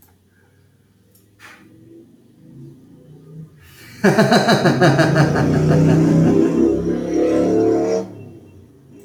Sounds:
Laughter